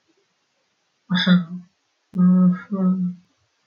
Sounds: Sigh